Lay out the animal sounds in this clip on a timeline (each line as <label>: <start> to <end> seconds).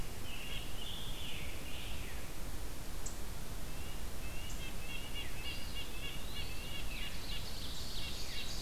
Scarlet Tanager (Piranga olivacea): 0.2 to 2.2 seconds
Red-breasted Nuthatch (Sitta canadensis): 3.4 to 8.6 seconds
Eastern Wood-Pewee (Contopus virens): 5.3 to 6.6 seconds
Ovenbird (Seiurus aurocapilla): 6.7 to 8.6 seconds
Veery (Catharus fuscescens): 6.8 to 7.1 seconds